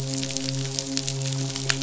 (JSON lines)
{"label": "biophony, midshipman", "recorder": "SoundTrap 500"}